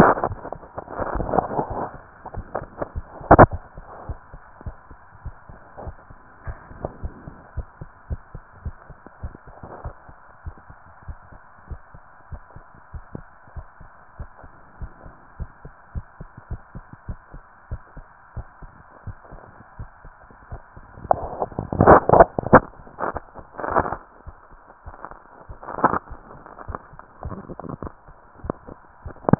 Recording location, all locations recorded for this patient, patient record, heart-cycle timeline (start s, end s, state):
tricuspid valve (TV)
aortic valve (AV)+pulmonary valve (PV)+tricuspid valve (TV)+mitral valve (MV)
#Age: Child
#Sex: Female
#Height: 146.0 cm
#Weight: 44.3 kg
#Pregnancy status: False
#Murmur: Absent
#Murmur locations: nan
#Most audible location: nan
#Systolic murmur timing: nan
#Systolic murmur shape: nan
#Systolic murmur grading: nan
#Systolic murmur pitch: nan
#Systolic murmur quality: nan
#Diastolic murmur timing: nan
#Diastolic murmur shape: nan
#Diastolic murmur grading: nan
#Diastolic murmur pitch: nan
#Diastolic murmur quality: nan
#Outcome: Normal
#Campaign: 2015 screening campaign
0.00	4.07	unannotated
4.07	4.20	S1
4.20	4.32	systole
4.32	4.40	S2
4.40	4.62	diastole
4.62	4.76	S1
4.76	4.90	systole
4.90	4.98	S2
4.98	5.22	diastole
5.22	5.36	S1
5.36	5.48	systole
5.48	5.58	S2
5.58	5.82	diastole
5.82	5.96	S1
5.96	6.08	systole
6.08	6.16	S2
6.16	6.44	diastole
6.44	6.58	S1
6.58	6.70	systole
6.70	6.78	S2
6.78	6.98	diastole
6.98	7.14	S1
7.14	7.24	systole
7.24	7.34	S2
7.34	7.54	diastole
7.54	7.68	S1
7.68	7.80	systole
7.80	7.90	S2
7.90	8.10	diastole
8.10	8.22	S1
8.22	8.34	systole
8.34	8.42	S2
8.42	8.62	diastole
8.62	8.76	S1
8.76	8.88	systole
8.88	8.96	S2
8.96	9.20	diastole
9.20	9.34	S1
9.34	9.46	systole
9.46	9.54	S2
9.54	9.82	diastole
9.82	9.96	S1
9.96	10.08	systole
10.08	10.14	S2
10.14	10.42	diastole
10.42	10.56	S1
10.56	10.68	systole
10.68	10.76	S2
10.76	11.06	diastole
11.06	11.18	S1
11.18	11.30	systole
11.30	11.40	S2
11.40	11.68	diastole
11.68	11.80	S1
11.80	11.92	systole
11.92	12.00	S2
12.00	12.28	diastole
12.28	12.42	S1
12.42	12.56	systole
12.56	12.64	S2
12.64	12.94	diastole
12.94	13.04	S1
13.04	13.14	systole
13.14	13.26	S2
13.26	13.54	diastole
13.54	13.68	S1
13.68	13.80	systole
13.80	13.88	S2
13.88	14.16	diastole
14.16	14.30	S1
14.30	14.42	systole
14.42	14.50	S2
14.50	14.78	diastole
14.78	14.92	S1
14.92	15.04	systole
15.04	15.14	S2
15.14	15.38	diastole
15.38	15.52	S1
15.52	15.64	systole
15.64	15.72	S2
15.72	15.92	diastole
15.92	16.06	S1
16.06	16.18	systole
16.18	16.28	S2
16.28	16.48	diastole
16.48	16.62	S1
16.62	16.73	systole
16.73	16.84	S2
16.84	17.06	diastole
17.06	17.20	S1
17.20	17.32	systole
17.32	17.42	S2
17.42	17.68	diastole
17.68	17.82	S1
17.82	17.94	systole
17.94	18.04	S2
18.04	18.34	diastole
18.34	18.48	S1
18.48	18.60	systole
18.60	18.72	S2
18.72	19.04	diastole
19.04	19.16	S1
19.16	19.32	systole
19.32	19.46	S2
19.46	19.78	diastole
19.78	19.90	S1
19.90	20.04	systole
20.04	20.12	S2
20.12	20.44	diastole
20.44	29.39	unannotated